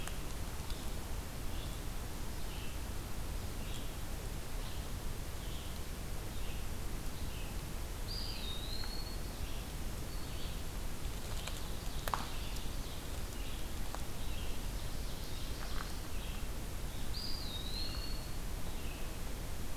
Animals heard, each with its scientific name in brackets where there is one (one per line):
Eastern Wood-Pewee (Contopus virens)
Black-throated Green Warbler (Setophaga virens)
Red-eyed Vireo (Vireo olivaceus)
Ovenbird (Seiurus aurocapilla)